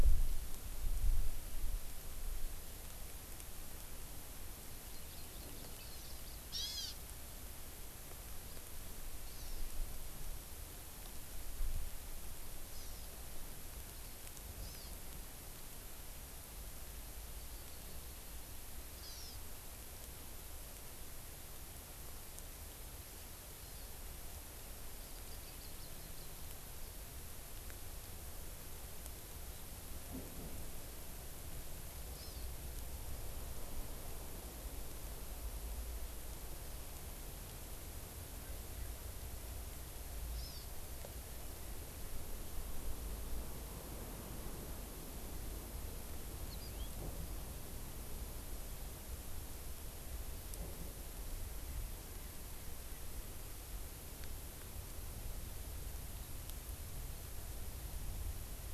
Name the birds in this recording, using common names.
Hawaii Amakihi, House Finch